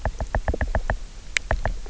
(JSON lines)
{"label": "biophony, knock", "recorder": "SoundTrap 300"}